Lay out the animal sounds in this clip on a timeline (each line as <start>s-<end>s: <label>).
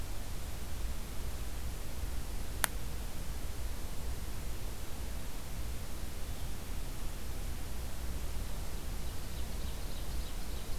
8.7s-10.8s: Ovenbird (Seiurus aurocapilla)